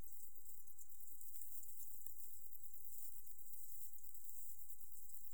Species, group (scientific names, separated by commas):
Decticus verrucivorus, Orthoptera